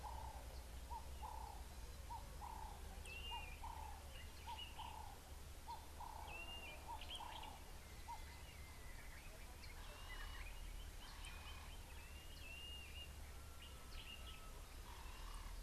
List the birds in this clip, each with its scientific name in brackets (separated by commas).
Blue-naped Mousebird (Urocolius macrourus)